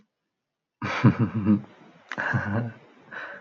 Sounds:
Laughter